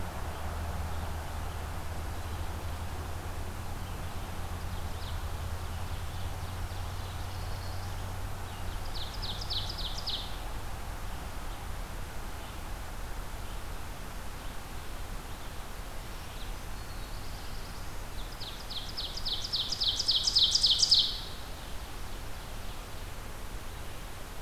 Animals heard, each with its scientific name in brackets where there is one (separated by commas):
Black-throated Green Warbler (Setophaga virens), Red-eyed Vireo (Vireo olivaceus), Ovenbird (Seiurus aurocapilla), Black-throated Blue Warbler (Setophaga caerulescens)